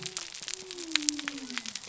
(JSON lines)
{"label": "biophony", "recorder": "SoundTrap 300"}